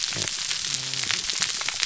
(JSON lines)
{"label": "biophony, whup", "recorder": "SoundTrap 300"}
{"label": "biophony", "recorder": "SoundTrap 300"}